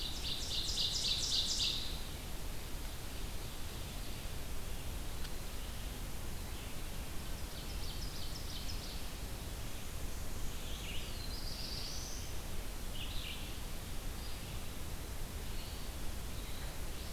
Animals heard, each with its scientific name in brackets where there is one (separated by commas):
Ovenbird (Seiurus aurocapilla), Black-throated Blue Warbler (Setophaga caerulescens), Red-eyed Vireo (Vireo olivaceus)